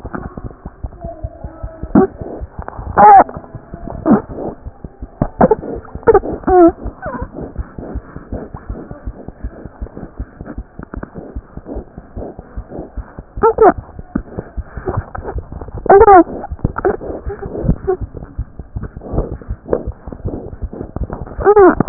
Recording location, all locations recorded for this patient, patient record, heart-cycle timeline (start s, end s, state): aortic valve (AV)
aortic valve (AV)
#Age: Infant
#Sex: Female
#Height: 60.0 cm
#Weight: 7.0 kg
#Pregnancy status: False
#Murmur: Absent
#Murmur locations: nan
#Most audible location: nan
#Systolic murmur timing: nan
#Systolic murmur shape: nan
#Systolic murmur grading: nan
#Systolic murmur pitch: nan
#Systolic murmur quality: nan
#Diastolic murmur timing: nan
#Diastolic murmur shape: nan
#Diastolic murmur grading: nan
#Diastolic murmur pitch: nan
#Diastolic murmur quality: nan
#Outcome: Normal
#Campaign: 2015 screening campaign
0.00	7.76	unannotated
7.76	7.82	S1
7.82	7.93	systole
7.93	8.02	S2
8.02	8.14	diastole
8.14	8.20	S1
8.20	8.30	systole
8.30	8.37	S2
8.37	8.52	diastole
8.52	8.58	S1
8.58	8.68	systole
8.68	8.75	S2
8.75	8.89	diastole
8.89	8.95	S1
8.95	9.05	systole
9.05	9.12	S2
9.12	9.27	diastole
9.27	9.33	S1
9.33	9.43	systole
9.43	9.50	S2
9.50	9.63	diastole
9.63	9.69	S1
9.69	9.80	systole
9.80	9.87	S2
9.87	10.02	diastole
10.02	10.07	S1
10.07	10.18	systole
10.18	10.25	S2
10.25	10.40	diastole
10.40	10.45	S1
10.45	10.56	systole
10.56	10.63	S2
10.63	10.78	diastole
10.78	10.83	S1
10.83	10.95	systole
10.95	11.01	S2
11.01	11.17	diastole
11.17	11.21	S1
11.21	11.35	systole
11.35	11.43	S2
11.43	11.55	diastole
11.55	11.62	S1
11.62	21.89	unannotated